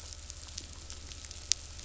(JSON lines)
{"label": "anthrophony, boat engine", "recorder": "SoundTrap 500"}